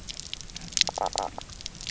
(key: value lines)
label: biophony, knock croak
recorder: SoundTrap 300